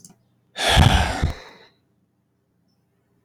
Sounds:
Sigh